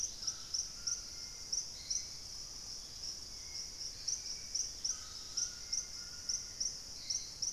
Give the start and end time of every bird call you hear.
0.0s-7.5s: Dusky-capped Greenlet (Pachysylvia hypoxantha)
0.0s-7.5s: Hauxwell's Thrush (Turdus hauxwelli)
0.0s-7.5s: White-throated Toucan (Ramphastos tucanus)

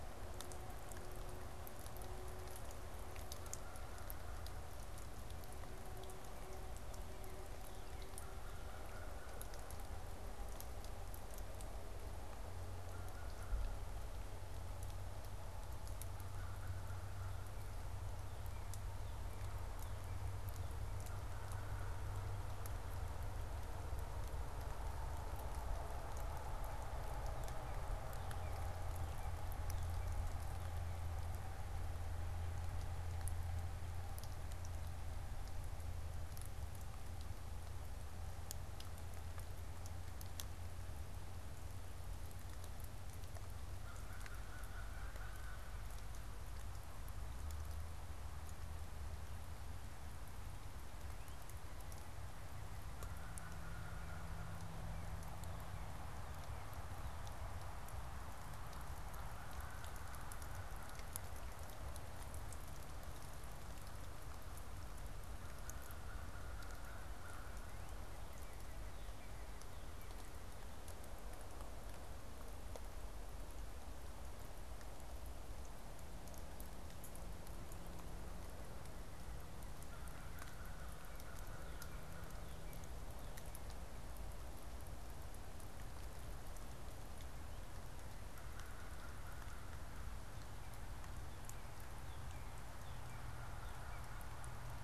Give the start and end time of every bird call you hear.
3.2s-4.6s: American Crow (Corvus brachyrhynchos)
6.1s-8.5s: Northern Cardinal (Cardinalis cardinalis)
8.0s-10.2s: American Crow (Corvus brachyrhynchos)
12.6s-13.9s: American Crow (Corvus brachyrhynchos)
16.3s-17.6s: American Crow (Corvus brachyrhynchos)
17.1s-21.1s: Northern Cardinal (Cardinalis cardinalis)
21.1s-22.3s: American Crow (Corvus brachyrhynchos)
27.1s-31.1s: Northern Cardinal (Cardinalis cardinalis)
43.5s-46.0s: American Crow (Corvus brachyrhynchos)
51.0s-57.8s: Northern Cardinal (Cardinalis cardinalis)
52.9s-55.0s: American Crow (Corvus brachyrhynchos)
58.6s-61.2s: American Crow (Corvus brachyrhynchos)
65.2s-67.6s: American Crow (Corvus brachyrhynchos)
67.3s-71.1s: Northern Cardinal (Cardinalis cardinalis)
77.7s-83.7s: Northern Cardinal (Cardinalis cardinalis)
79.7s-82.6s: American Crow (Corvus brachyrhynchos)
88.2s-90.1s: American Crow (Corvus brachyrhynchos)
90.4s-94.4s: Northern Cardinal (Cardinalis cardinalis)
92.8s-94.8s: American Crow (Corvus brachyrhynchos)

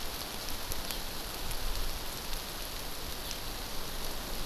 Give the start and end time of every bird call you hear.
0.9s-1.0s: Eurasian Skylark (Alauda arvensis)
3.3s-3.5s: Eurasian Skylark (Alauda arvensis)

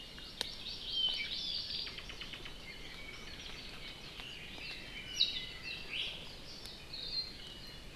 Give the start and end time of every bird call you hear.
0.0s-2.1s: Hawaii Amakihi (Chlorodrepanis virens)
0.9s-1.9s: Apapane (Himatione sanguinea)
4.1s-5.9s: Apapane (Himatione sanguinea)
5.9s-6.1s: Iiwi (Drepanis coccinea)

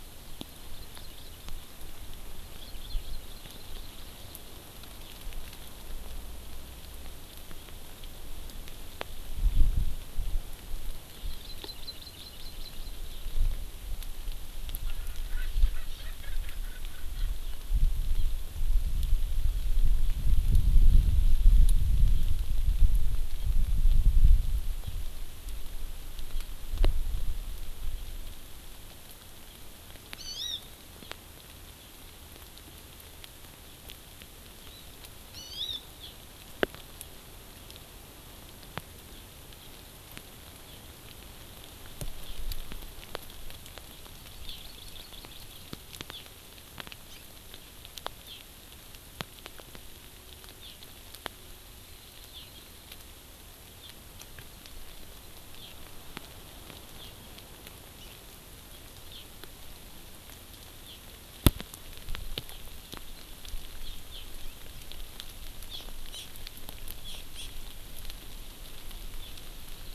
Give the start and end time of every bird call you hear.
0.7s-1.4s: Hawaii Amakihi (Chlorodrepanis virens)
2.5s-3.8s: Hawaii Amakihi (Chlorodrepanis virens)
11.3s-12.9s: Hawaii Amakihi (Chlorodrepanis virens)
14.8s-17.3s: Erckel's Francolin (Pternistis erckelii)
18.1s-18.2s: Hawaii Amakihi (Chlorodrepanis virens)
30.1s-30.6s: Hawaii Amakihi (Chlorodrepanis virens)
35.3s-36.1s: Hawaii Amakihi (Chlorodrepanis virens)
44.4s-45.6s: Hawaii Amakihi (Chlorodrepanis virens)
46.1s-46.2s: Hawaii Amakihi (Chlorodrepanis virens)
47.0s-47.2s: Hawaii Amakihi (Chlorodrepanis virens)
48.2s-48.4s: Hawaii Amakihi (Chlorodrepanis virens)
50.6s-50.7s: Hawaii Amakihi (Chlorodrepanis virens)
52.3s-52.4s: Hawaii Amakihi (Chlorodrepanis virens)
55.6s-55.7s: Hawaii Amakihi (Chlorodrepanis virens)
56.9s-57.1s: Hawaii Amakihi (Chlorodrepanis virens)
59.1s-59.2s: Hawaii Amakihi (Chlorodrepanis virens)
60.8s-61.0s: Hawaii Amakihi (Chlorodrepanis virens)
63.8s-64.2s: Hawaii Amakihi (Chlorodrepanis virens)
65.6s-66.2s: Hawaii Amakihi (Chlorodrepanis virens)
67.0s-67.5s: Hawaii Amakihi (Chlorodrepanis virens)

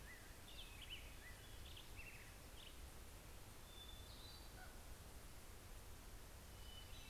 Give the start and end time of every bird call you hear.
0.0s-3.3s: Black-headed Grosbeak (Pheucticus melanocephalus)
3.6s-7.1s: Hermit Thrush (Catharus guttatus)
3.9s-5.4s: Common Raven (Corvus corax)

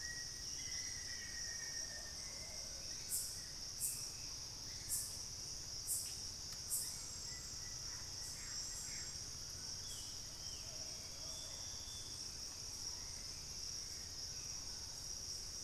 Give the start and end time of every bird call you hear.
0.0s-2.3s: Black-faced Antthrush (Formicarius analis)
0.0s-3.0s: Plumbeous Pigeon (Patagioenas plumbea)
2.7s-6.2s: Hauxwell's Thrush (Turdus hauxwelli)
7.1s-9.1s: Plain-winged Antshrike (Thamnophilus schistaceus)
9.7s-10.9s: Ringed Antpipit (Corythopis torquatus)
10.5s-11.6s: Plumbeous Pigeon (Patagioenas plumbea)

